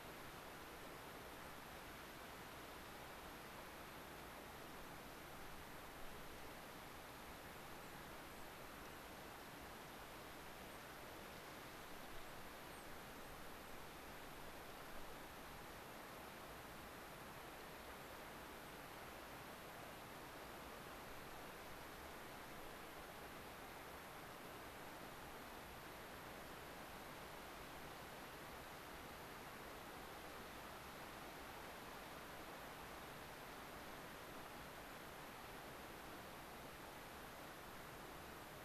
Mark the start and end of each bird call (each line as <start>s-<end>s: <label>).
12.0s-13.7s: unidentified bird